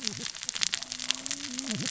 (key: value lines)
label: biophony, cascading saw
recorder: SoundTrap 600 or HydroMoth